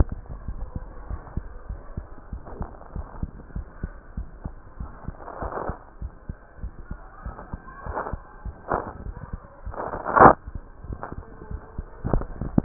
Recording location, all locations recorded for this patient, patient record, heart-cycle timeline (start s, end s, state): mitral valve (MV)
aortic valve (AV)+pulmonary valve (PV)+tricuspid valve (TV)+mitral valve (MV)
#Age: Child
#Sex: Male
#Height: 105.0 cm
#Weight: 16.4 kg
#Pregnancy status: False
#Murmur: Absent
#Murmur locations: nan
#Most audible location: nan
#Systolic murmur timing: nan
#Systolic murmur shape: nan
#Systolic murmur grading: nan
#Systolic murmur pitch: nan
#Systolic murmur quality: nan
#Diastolic murmur timing: nan
#Diastolic murmur shape: nan
#Diastolic murmur grading: nan
#Diastolic murmur pitch: nan
#Diastolic murmur quality: nan
#Outcome: Normal
#Campaign: 2015 screening campaign
0.00	1.04	unannotated
1.04	1.10	diastole
1.10	1.20	S1
1.20	1.36	systole
1.36	1.46	S2
1.46	1.70	diastole
1.70	1.82	S1
1.82	1.98	systole
1.98	2.06	S2
2.06	2.32	diastole
2.32	2.42	S1
2.42	2.60	systole
2.60	2.68	S2
2.68	2.96	diastole
2.96	3.08	S1
3.08	3.22	systole
3.22	3.30	S2
3.30	3.56	diastole
3.56	3.66	S1
3.66	3.82	systole
3.82	3.92	S2
3.92	4.18	diastole
4.18	4.24	S1
4.24	4.44	systole
4.44	4.50	S2
4.50	4.80	diastole
4.80	4.92	S1
4.92	5.10	systole
5.10	5.16	S2
5.16	5.44	diastole
5.44	5.52	S1
5.52	5.68	systole
5.68	5.76	S2
5.76	6.02	diastole
6.02	6.12	S1
6.12	6.30	systole
6.30	6.38	S2
6.38	6.60	diastole
6.60	12.64	unannotated